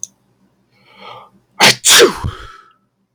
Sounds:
Sneeze